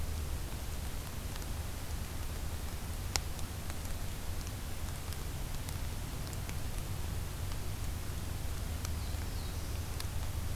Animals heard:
Black-throated Blue Warbler (Setophaga caerulescens)

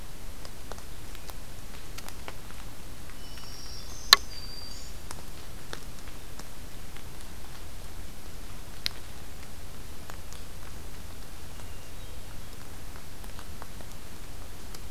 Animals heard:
Hermit Thrush (Catharus guttatus), Black-throated Green Warbler (Setophaga virens)

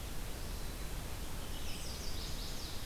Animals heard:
Red-eyed Vireo (Vireo olivaceus), Black-capped Chickadee (Poecile atricapillus), Chestnut-sided Warbler (Setophaga pensylvanica)

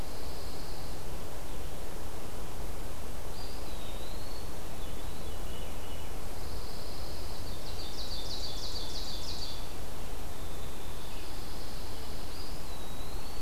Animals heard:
Eastern Wood-Pewee (Contopus virens), Ovenbird (Seiurus aurocapilla), Veery (Catharus fuscescens), Pine Warbler (Setophaga pinus), Hairy Woodpecker (Dryobates villosus)

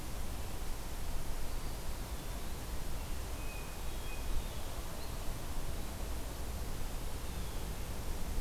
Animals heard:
Blue Jay (Cyanocitta cristata), Hermit Thrush (Catharus guttatus)

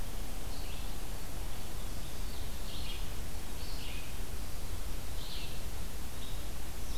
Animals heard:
Red-eyed Vireo (Vireo olivaceus)

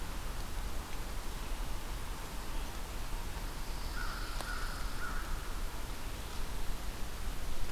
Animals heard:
American Crow (Corvus brachyrhynchos), Pine Warbler (Setophaga pinus)

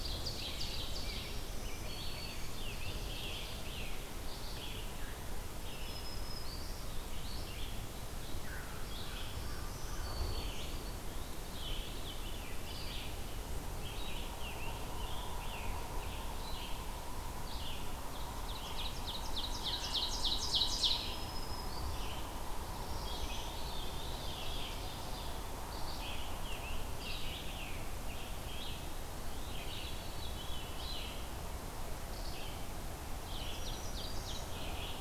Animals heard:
American Crow (Corvus brachyrhynchos), Veery (Catharus fuscescens), Ovenbird (Seiurus aurocapilla), Scarlet Tanager (Piranga olivacea), Black-throated Green Warbler (Setophaga virens), Red-eyed Vireo (Vireo olivaceus)

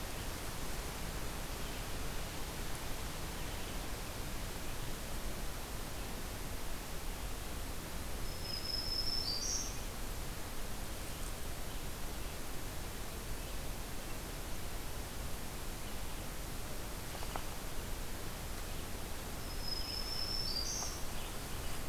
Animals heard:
Black-throated Green Warbler (Setophaga virens), Red-eyed Vireo (Vireo olivaceus)

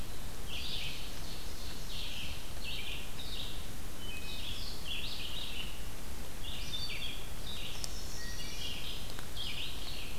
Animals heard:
Red-eyed Vireo (Vireo olivaceus), Wood Thrush (Hylocichla mustelina), Ovenbird (Seiurus aurocapilla)

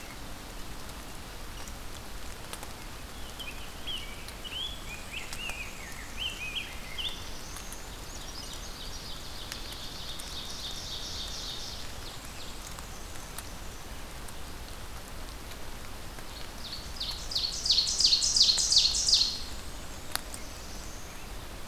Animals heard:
Ovenbird (Seiurus aurocapilla), Black-throated Blue Warbler (Setophaga caerulescens), Rose-breasted Grosbeak (Pheucticus ludovicianus), Black-and-white Warbler (Mniotilta varia)

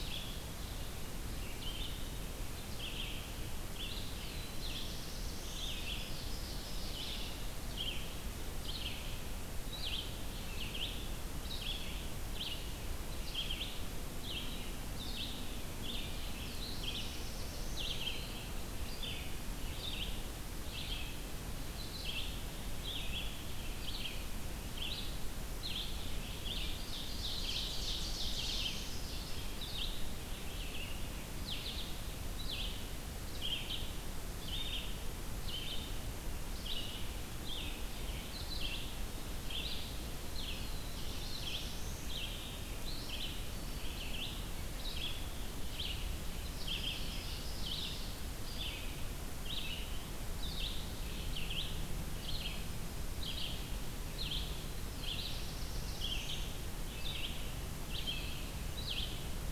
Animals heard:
Ovenbird (Seiurus aurocapilla), Red-eyed Vireo (Vireo olivaceus), Black-throated Green Warbler (Setophaga virens), Black-throated Blue Warbler (Setophaga caerulescens)

